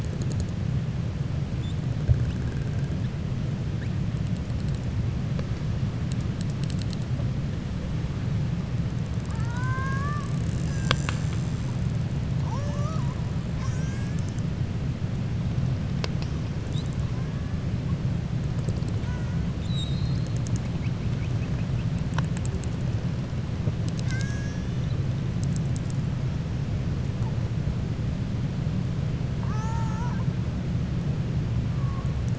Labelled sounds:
9.2	10.3	killer whale, 0.70 to 2.2 kHz
23.8	25.0	killer whale, 1.5 to 7.5 kHz
29.3	30.3	killer whale, 0.83 to 2.6 kHz

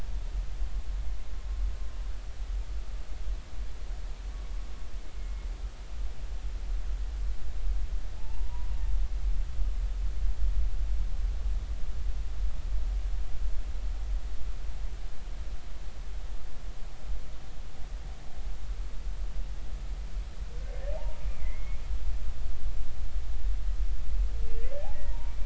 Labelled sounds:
8.2	8.7	humpback whale, 0.80 to 1.0 kHz
20.9	21.8	humpback whale, 0.80 to 2.4 kHz
24.9	25.3	humpback whale, 0.90 to 2.0 kHz

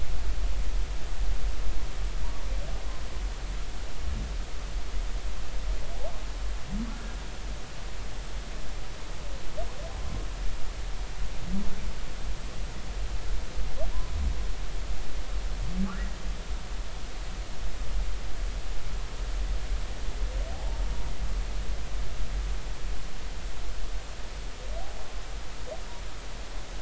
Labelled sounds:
6.9	7.2	humpback whale, 1.3 to 1.5 kHz
20.5	20.8	humpback whale, 0.80 to 0.96 kHz

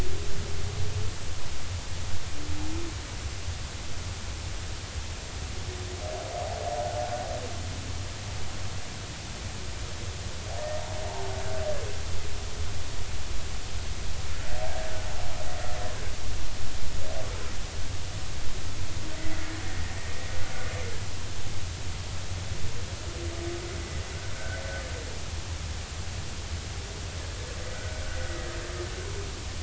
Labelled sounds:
24.3	24.6	humpback whale, 1.4 to 1.6 kHz
27.7	28.0	humpback whale, 1.4 to 1.6 kHz

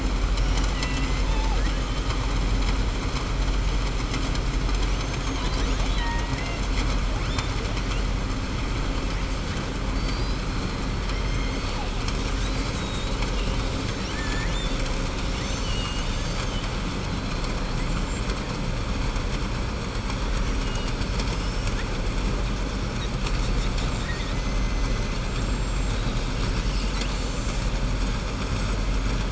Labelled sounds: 0.4	1.1	killer whale, southern resident, 1.0 to 4.0 kHz
4.7	6.6	killer whale, southern resident, 0.93 to 7.4 kHz
13.9	14.8	killer whale, southern resident, 1.7 to 4.5 kHz
17.8	18.3	killer whale, southern resident, 7.0 to 8.0 kHz
25.3	25.9	killer whale, southern resident, 6.6 to 7.6 kHz

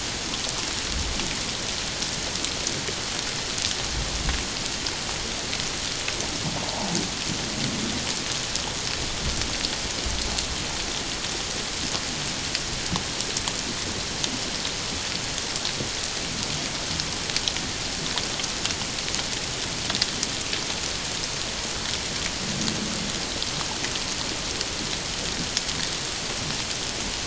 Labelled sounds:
6.7	6.9	humpback whale, 0.78 to 1.0 kHz

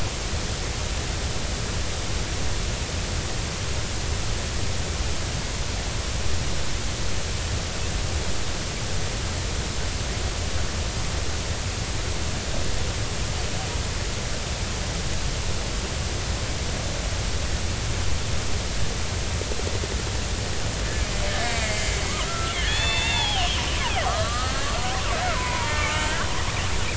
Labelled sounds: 21.5	26.3	killer whale, Bigg's (transient), 0.80 to 4.5 kHz

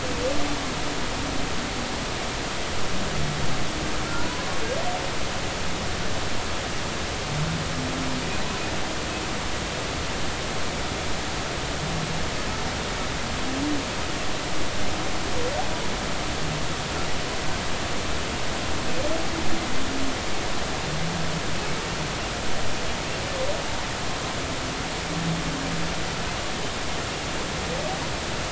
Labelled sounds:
4.2	4.6	humpback whale, 0.93 to 1.1 kHz
8.3	8.5	humpback whale, 3.8 to 4.0 kHz

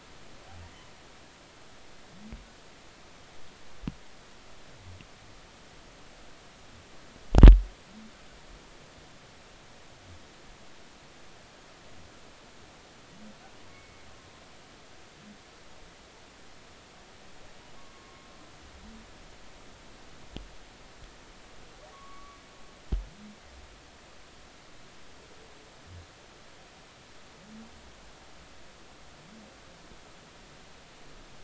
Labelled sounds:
13.7	14.0	humpback whale, 2.1 to 2.3 kHz
17.8	18.3	humpback whale, 1.0 to 1.2 kHz
21.9	22.4	humpback whale, 1.0 to 1.2 kHz

